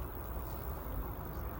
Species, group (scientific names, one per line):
Roeseliana roeselii
Orthoptera